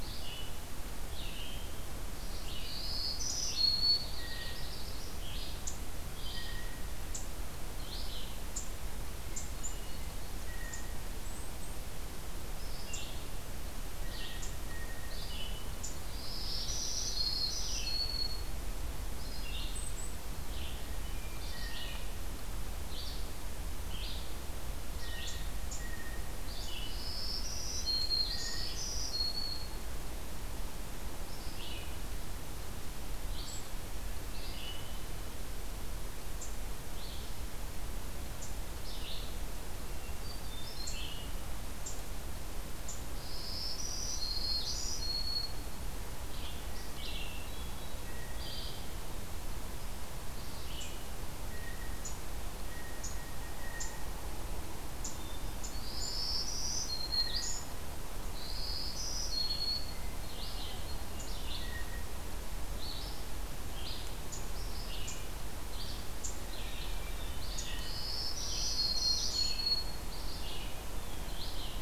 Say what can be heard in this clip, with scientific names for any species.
Vireo olivaceus, Setophaga virens, Setophaga coronata, Cyanocitta cristata, Catharus guttatus